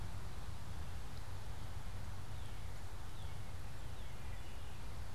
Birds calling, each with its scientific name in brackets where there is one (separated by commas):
Northern Cardinal (Cardinalis cardinalis)